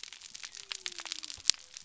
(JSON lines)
{"label": "biophony", "recorder": "SoundTrap 300"}